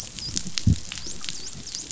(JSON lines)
{"label": "biophony, dolphin", "recorder": "SoundTrap 500"}